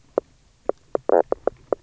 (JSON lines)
{"label": "biophony, knock croak", "recorder": "SoundTrap 300"}